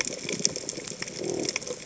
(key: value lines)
label: biophony
recorder: HydroMoth